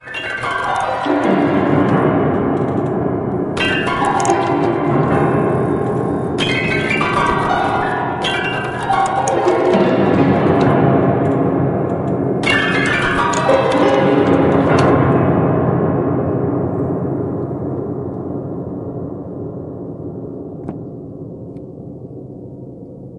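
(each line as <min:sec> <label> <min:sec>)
0:00.0 Piano keys being played randomly with decreasing pitch and reverb. 0:23.2
0:20.6 A short, quiet thumping noise. 0:20.8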